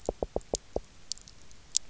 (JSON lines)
{"label": "biophony, knock", "recorder": "SoundTrap 300"}